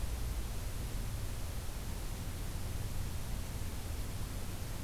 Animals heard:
forest ambience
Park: Acadia National Park